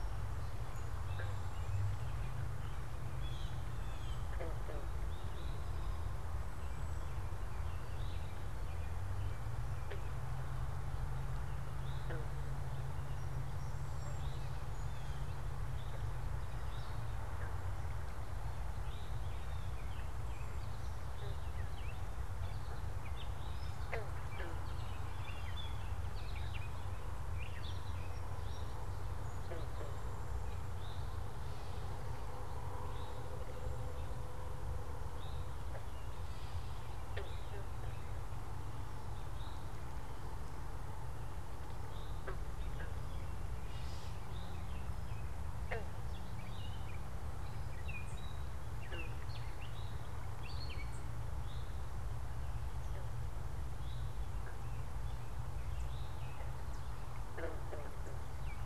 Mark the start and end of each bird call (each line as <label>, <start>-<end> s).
Eastern Towhee (Pipilo erythrophthalmus), 0.9-1.5 s
Blue Jay (Cyanocitta cristata), 3.1-4.4 s
Cedar Waxwing (Bombycilla cedrorum), 3.7-7.3 s
Eastern Towhee (Pipilo erythrophthalmus), 5.1-5.8 s
Eastern Towhee (Pipilo erythrophthalmus), 7.8-8.5 s
Eastern Towhee (Pipilo erythrophthalmus), 11.6-12.3 s
Cedar Waxwing (Bombycilla cedrorum), 13.5-14.4 s
Eastern Towhee (Pipilo erythrophthalmus), 14.1-17.3 s
Eastern Towhee (Pipilo erythrophthalmus), 18.8-47.2 s
American Goldfinch (Spinus tristis), 20.5-28.1 s
Gray Catbird (Dumetella carolinensis), 46.2-51.2 s
Eastern Towhee (Pipilo erythrophthalmus), 51.4-56.3 s